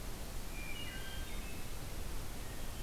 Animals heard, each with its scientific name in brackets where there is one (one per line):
Wood Thrush (Hylocichla mustelina)